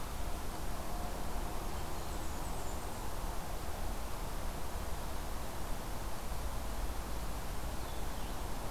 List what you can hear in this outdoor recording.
Blue-headed Vireo, Blackburnian Warbler